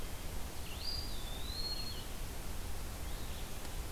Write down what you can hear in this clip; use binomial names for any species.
Vireo solitarius, Contopus virens